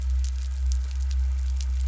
{"label": "anthrophony, boat engine", "recorder": "SoundTrap 300"}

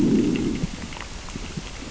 {"label": "biophony, growl", "recorder": "SoundTrap 600 or HydroMoth"}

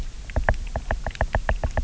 {"label": "biophony, knock", "recorder": "SoundTrap 300"}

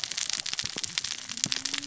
{"label": "biophony, cascading saw", "recorder": "SoundTrap 600 or HydroMoth"}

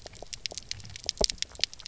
{"label": "biophony, pulse", "recorder": "SoundTrap 300"}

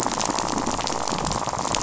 {"label": "biophony, rattle", "recorder": "SoundTrap 500"}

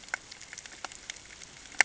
{"label": "ambient", "recorder": "HydroMoth"}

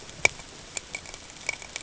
{"label": "ambient", "recorder": "HydroMoth"}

